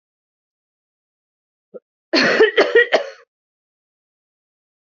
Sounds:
Cough